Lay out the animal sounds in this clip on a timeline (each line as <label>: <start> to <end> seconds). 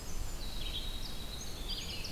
Red-eyed Vireo (Vireo olivaceus): 0.0 to 2.1 seconds
Winter Wren (Troglodytes hiemalis): 0.0 to 2.1 seconds